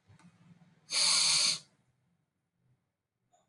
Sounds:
Sniff